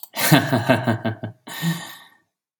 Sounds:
Laughter